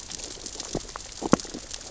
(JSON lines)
{"label": "biophony, sea urchins (Echinidae)", "recorder": "SoundTrap 600 or HydroMoth"}